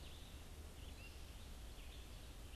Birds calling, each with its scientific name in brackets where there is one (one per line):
Red-eyed Vireo (Vireo olivaceus)